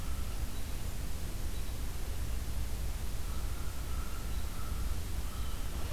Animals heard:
American Robin (Turdus migratorius), American Crow (Corvus brachyrhynchos), Blue Jay (Cyanocitta cristata)

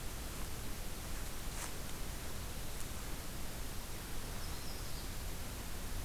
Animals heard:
Yellow-rumped Warbler (Setophaga coronata)

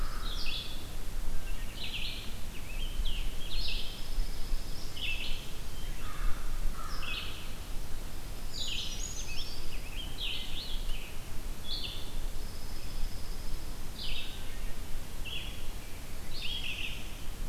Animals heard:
Wood Thrush (Hylocichla mustelina), Scarlet Tanager (Piranga olivacea), American Crow (Corvus brachyrhynchos), Pine Warbler (Setophaga pinus), Brown Creeper (Certhia americana), Red-eyed Vireo (Vireo olivaceus)

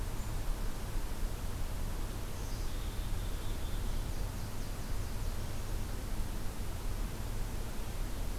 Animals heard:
Black-capped Chickadee (Poecile atricapillus), Nashville Warbler (Leiothlypis ruficapilla)

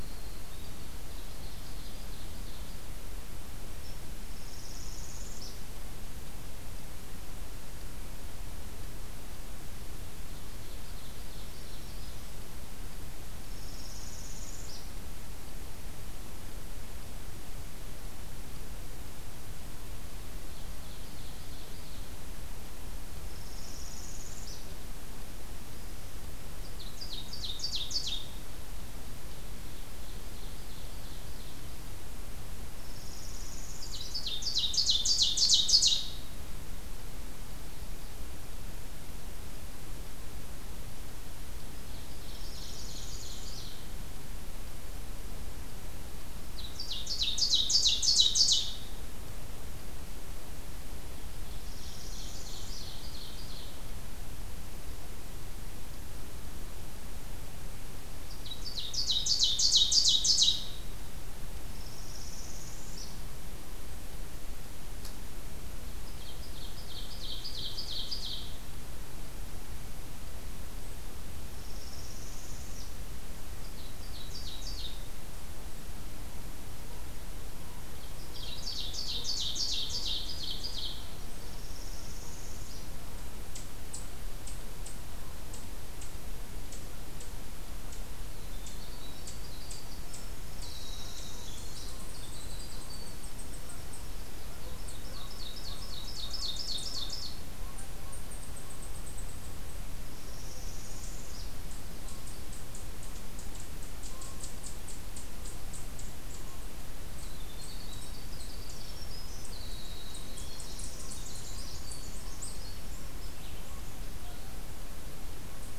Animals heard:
Ovenbird (Seiurus aurocapilla), unknown mammal, Northern Parula (Setophaga americana), Canada Goose (Branta canadensis), Black-throated Green Warbler (Setophaga virens), Winter Wren (Troglodytes hiemalis)

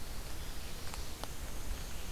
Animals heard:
Black-and-white Warbler (Mniotilta varia), Red-eyed Vireo (Vireo olivaceus), Ruffed Grouse (Bonasa umbellus)

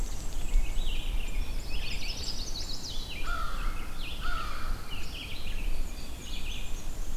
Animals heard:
Black-and-white Warbler (Mniotilta varia), Chestnut-sided Warbler (Setophaga pensylvanica), Pine Warbler (Setophaga pinus), Red-eyed Vireo (Vireo olivaceus), American Robin (Turdus migratorius), American Crow (Corvus brachyrhynchos)

